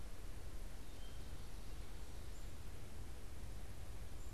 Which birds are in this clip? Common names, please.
Wood Thrush